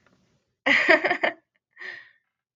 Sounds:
Laughter